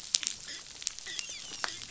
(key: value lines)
label: biophony, dolphin
recorder: SoundTrap 500